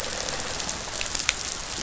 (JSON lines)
{"label": "biophony", "recorder": "SoundTrap 500"}